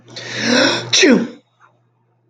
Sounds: Sneeze